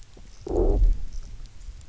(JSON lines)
{"label": "biophony, low growl", "recorder": "SoundTrap 300"}